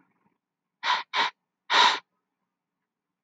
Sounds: Sniff